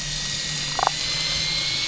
{"label": "anthrophony, boat engine", "recorder": "SoundTrap 500"}
{"label": "biophony, damselfish", "recorder": "SoundTrap 500"}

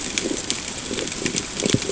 {"label": "ambient", "recorder": "HydroMoth"}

